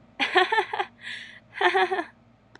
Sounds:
Laughter